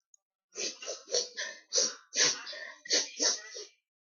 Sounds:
Sniff